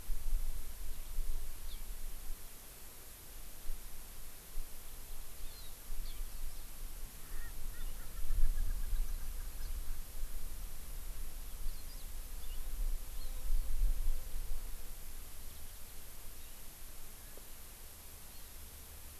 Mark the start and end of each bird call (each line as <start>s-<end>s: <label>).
7.3s-9.7s: Erckel's Francolin (Pternistis erckelii)